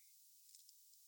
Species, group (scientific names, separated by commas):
Phaneroptera falcata, Orthoptera